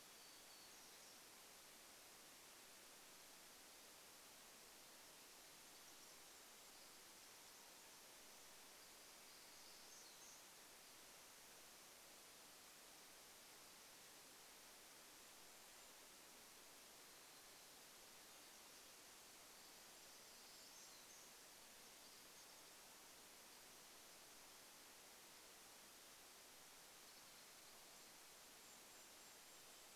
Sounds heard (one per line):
Pacific Wren song
Golden-crowned Kinglet song
Pine Siskin song
warbler song
Varied Thrush song